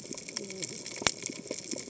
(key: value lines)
label: biophony, cascading saw
recorder: HydroMoth